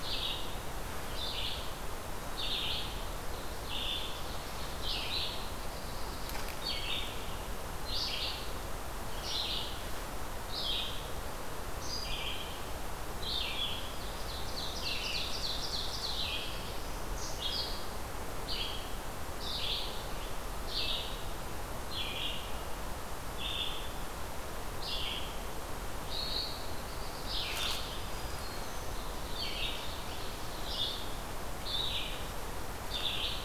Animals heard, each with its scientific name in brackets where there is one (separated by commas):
Red-eyed Vireo (Vireo olivaceus), Black-throated Blue Warbler (Setophaga caerulescens), Ovenbird (Seiurus aurocapilla), Black-throated Green Warbler (Setophaga virens)